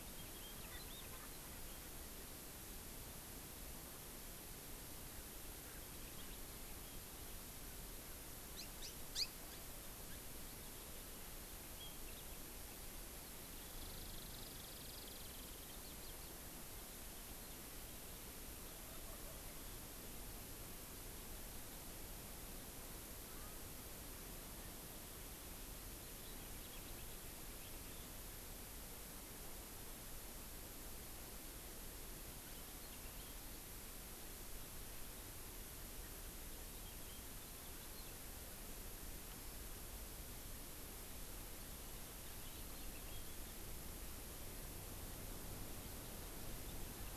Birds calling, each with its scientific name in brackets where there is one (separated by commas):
Hawaii Amakihi (Chlorodrepanis virens), House Finch (Haemorhous mexicanus), Eurasian Skylark (Alauda arvensis), Wild Turkey (Meleagris gallopavo)